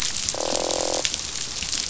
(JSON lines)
{"label": "biophony, croak", "recorder": "SoundTrap 500"}